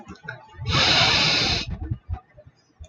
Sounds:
Sniff